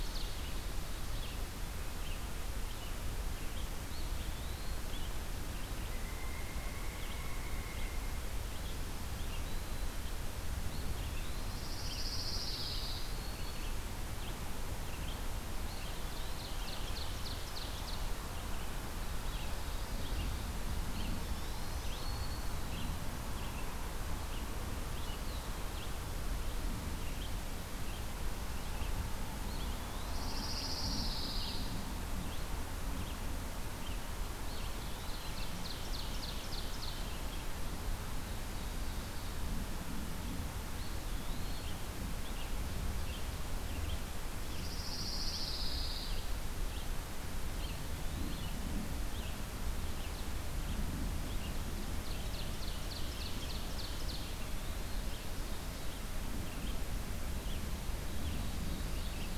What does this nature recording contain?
Black-throated Green Warbler, Red-eyed Vireo, Eastern Wood-Pewee, Pileated Woodpecker, Pine Warbler, Ovenbird